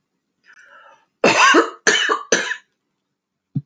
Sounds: Cough